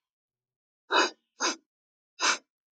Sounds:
Sniff